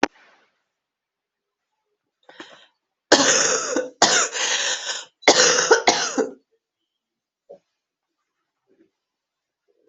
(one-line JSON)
{"expert_labels": [{"quality": "good", "cough_type": "dry", "dyspnea": false, "wheezing": false, "stridor": false, "choking": false, "congestion": true, "nothing": false, "diagnosis": "lower respiratory tract infection", "severity": "mild"}], "age": 37, "gender": "female", "respiratory_condition": false, "fever_muscle_pain": true, "status": "COVID-19"}